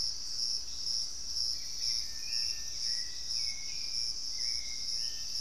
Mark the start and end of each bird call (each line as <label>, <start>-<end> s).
Thrush-like Wren (Campylorhynchus turdinus), 0.0-1.1 s
Hauxwell's Thrush (Turdus hauxwelli), 0.0-5.4 s